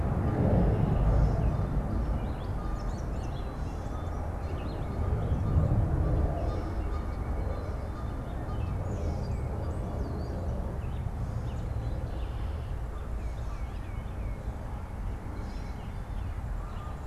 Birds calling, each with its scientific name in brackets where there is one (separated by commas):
Canada Goose (Branta canadensis), American Robin (Turdus migratorius), White-breasted Nuthatch (Sitta carolinensis), Gray Catbird (Dumetella carolinensis), Red-winged Blackbird (Agelaius phoeniceus), Tufted Titmouse (Baeolophus bicolor)